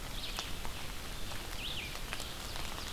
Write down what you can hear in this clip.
Red-eyed Vireo, Ovenbird